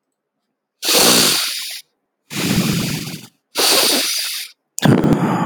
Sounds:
Sigh